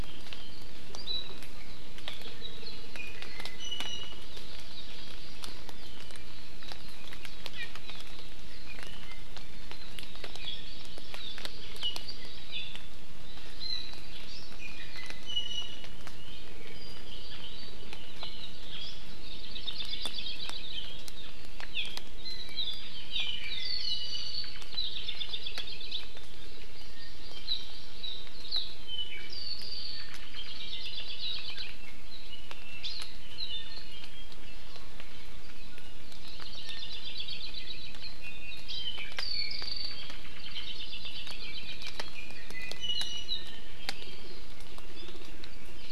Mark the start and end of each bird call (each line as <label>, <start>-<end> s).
Iiwi (Drepanis coccinea), 1.0-1.4 s
Iiwi (Drepanis coccinea), 3.0-4.2 s
Hawaii Amakihi (Chlorodrepanis virens), 4.2-5.7 s
Iiwi (Drepanis coccinea), 7.5-7.7 s
Hawaii Amakihi (Chlorodrepanis virens), 10.2-11.9 s
Hawaii Amakihi (Chlorodrepanis virens), 12.5-12.8 s
Iiwi (Drepanis coccinea), 14.6-16.0 s
Red-billed Leiothrix (Leiothrix lutea), 16.6-18.5 s
Hawaii Creeper (Loxops mana), 19.1-21.0 s
Hawaii Amakihi (Chlorodrepanis virens), 21.7-21.9 s
Hawaii Amakihi (Chlorodrepanis virens), 22.2-22.5 s
Iiwi (Drepanis coccinea), 23.1-24.6 s
Hawaii Creeper (Loxops mana), 24.7-26.1 s
Hawaii Amakihi (Chlorodrepanis virens), 26.5-28.3 s
Apapane (Himatione sanguinea), 28.8-30.1 s
Omao (Myadestes obscurus), 29.9-30.5 s
Hawaii Creeper (Loxops mana), 30.3-31.7 s
Apapane (Himatione sanguinea), 32.3-34.3 s
Hawaii Creeper (Loxops mana), 36.2-38.1 s
Iiwi (Drepanis coccinea), 38.2-38.7 s
Apapane (Himatione sanguinea), 38.6-40.1 s
Hawaii Creeper (Loxops mana), 40.4-41.9 s
Iiwi (Drepanis coccinea), 42.0-43.7 s